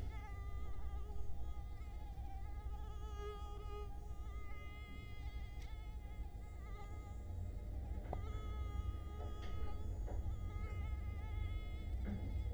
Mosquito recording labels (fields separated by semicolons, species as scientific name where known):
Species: Culex quinquefasciatus; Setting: cup